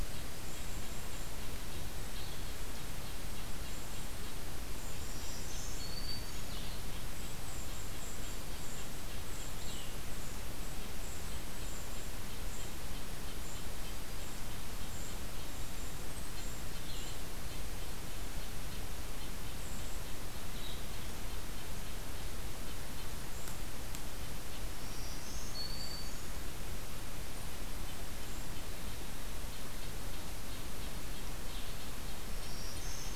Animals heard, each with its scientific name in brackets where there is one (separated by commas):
Red-breasted Nuthatch (Sitta canadensis), Black-throated Green Warbler (Setophaga virens), Red-eyed Vireo (Vireo olivaceus), Golden-crowned Kinglet (Regulus satrapa)